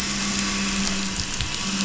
{"label": "anthrophony, boat engine", "recorder": "SoundTrap 500"}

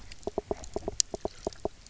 {"label": "biophony, knock", "recorder": "SoundTrap 300"}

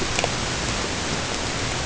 {"label": "ambient", "recorder": "HydroMoth"}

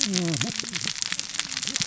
{"label": "biophony, cascading saw", "recorder": "SoundTrap 600 or HydroMoth"}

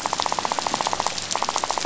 {"label": "biophony, rattle", "recorder": "SoundTrap 500"}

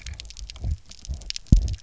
{"label": "biophony, double pulse", "recorder": "SoundTrap 300"}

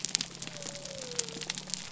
{"label": "biophony", "recorder": "SoundTrap 300"}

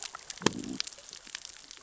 {"label": "biophony, growl", "recorder": "SoundTrap 600 or HydroMoth"}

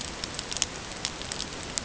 {"label": "ambient", "recorder": "HydroMoth"}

